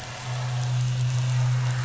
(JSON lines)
{"label": "anthrophony, boat engine", "recorder": "SoundTrap 500"}